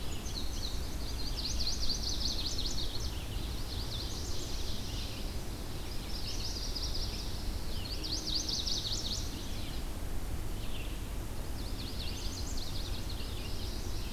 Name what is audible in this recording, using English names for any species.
Indigo Bunting, Red-eyed Vireo, Chestnut-sided Warbler, Ovenbird